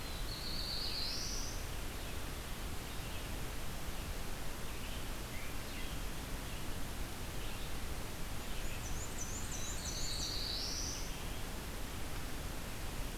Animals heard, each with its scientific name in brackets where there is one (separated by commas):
Black-and-white Warbler (Mniotilta varia), American Robin (Turdus migratorius), Red-eyed Vireo (Vireo olivaceus), Black-throated Blue Warbler (Setophaga caerulescens)